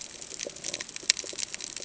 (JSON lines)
{"label": "ambient", "recorder": "HydroMoth"}